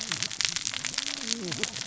{"label": "biophony, cascading saw", "recorder": "SoundTrap 600 or HydroMoth"}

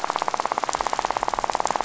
{"label": "biophony, rattle", "recorder": "SoundTrap 500"}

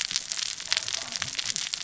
{"label": "biophony, cascading saw", "recorder": "SoundTrap 600 or HydroMoth"}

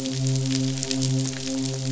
{"label": "biophony, midshipman", "recorder": "SoundTrap 500"}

